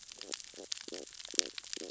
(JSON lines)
{"label": "biophony, stridulation", "recorder": "SoundTrap 600 or HydroMoth"}